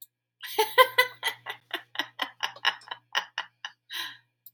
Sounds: Laughter